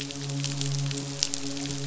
{"label": "biophony, midshipman", "recorder": "SoundTrap 500"}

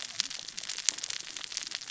{"label": "biophony, cascading saw", "recorder": "SoundTrap 600 or HydroMoth"}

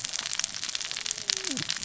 {"label": "biophony, cascading saw", "recorder": "SoundTrap 600 or HydroMoth"}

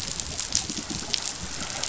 {"label": "biophony", "recorder": "SoundTrap 500"}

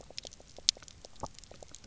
{"label": "biophony, pulse", "recorder": "SoundTrap 300"}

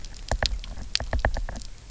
{"label": "biophony, knock", "recorder": "SoundTrap 300"}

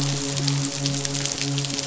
{"label": "biophony, midshipman", "recorder": "SoundTrap 500"}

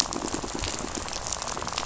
{"label": "biophony, rattle", "recorder": "SoundTrap 500"}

